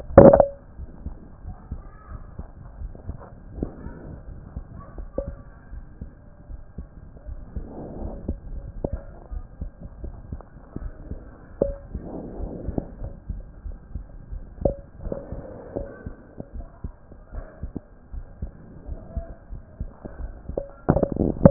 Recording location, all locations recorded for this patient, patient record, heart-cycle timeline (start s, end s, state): aortic valve (AV)
aortic valve (AV)+pulmonary valve (PV)+tricuspid valve (TV)+mitral valve (MV)
#Age: Child
#Sex: Male
#Height: 140.0 cm
#Weight: 33.2 kg
#Pregnancy status: False
#Murmur: Absent
#Murmur locations: nan
#Most audible location: nan
#Systolic murmur timing: nan
#Systolic murmur shape: nan
#Systolic murmur grading: nan
#Systolic murmur pitch: nan
#Systolic murmur quality: nan
#Diastolic murmur timing: nan
#Diastolic murmur shape: nan
#Diastolic murmur grading: nan
#Diastolic murmur pitch: nan
#Diastolic murmur quality: nan
#Outcome: Normal
#Campaign: 2014 screening campaign
0.00	1.44	unannotated
1.44	1.56	S1
1.56	1.70	systole
1.70	1.82	S2
1.82	2.10	diastole
2.10	2.22	S1
2.22	2.38	systole
2.38	2.46	S2
2.46	2.80	diastole
2.80	2.92	S1
2.92	3.08	systole
3.08	3.16	S2
3.16	3.56	diastole
3.56	3.70	S1
3.70	3.86	systole
3.86	3.94	S2
3.94	4.30	diastole
4.30	4.40	S1
4.40	4.56	systole
4.56	4.62	S2
4.62	4.98	diastole
4.98	5.08	S1
5.08	5.24	systole
5.24	5.36	S2
5.36	5.72	diastole
5.72	5.84	S1
5.84	6.02	systole
6.02	6.10	S2
6.10	6.50	diastole
6.50	6.60	S1
6.60	6.78	systole
6.78	6.86	S2
6.86	7.28	diastole
7.28	7.40	S1
7.40	7.56	systole
7.56	7.66	S2
7.66	7.78	diastole
7.78	21.50	unannotated